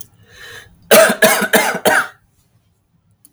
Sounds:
Cough